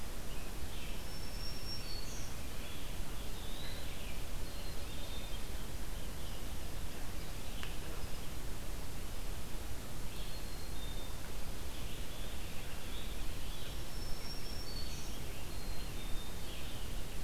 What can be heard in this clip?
Red-eyed Vireo, Black-throated Green Warbler, Eastern Wood-Pewee, Black-capped Chickadee, Blue Jay, Rose-breasted Grosbeak